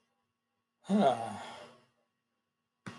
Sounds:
Sigh